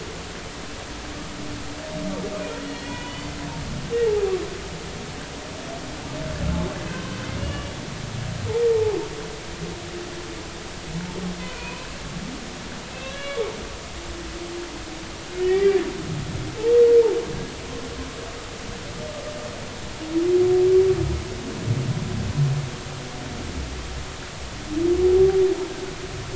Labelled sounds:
2.8	3.4	humpback whale, 0.90 to 4.7 kHz
7.4	7.7	humpback whale, 2.7 to 2.9 kHz
8.7	9.0	humpback whale, 0.80 to 0.93 kHz
11.4	11.9	humpback whale, 2.4 to 2.6 kHz
13.1	13.5	humpback whale, 2.8 to 3.5 kHz
15.4	15.8	humpback whale, 1.8 to 2.4 kHz

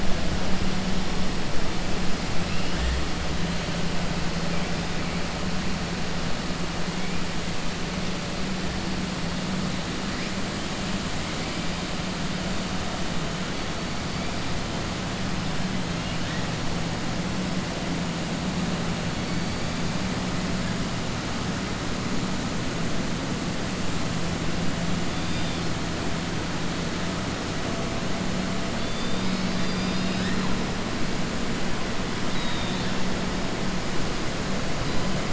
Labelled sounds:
25.1	25.6	killer whale, 2.7 to 4.9 kHz
32.2	32.9	killer whale, 3.3 to 4.8 kHz

